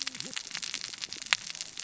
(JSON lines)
{"label": "biophony, cascading saw", "recorder": "SoundTrap 600 or HydroMoth"}